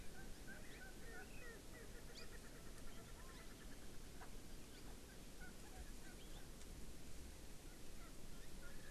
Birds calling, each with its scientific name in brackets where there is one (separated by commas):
Erckel's Francolin (Pternistis erckelii)